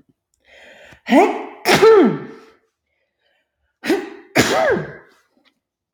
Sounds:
Sneeze